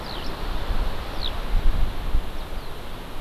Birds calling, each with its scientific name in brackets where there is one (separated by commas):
Eurasian Skylark (Alauda arvensis)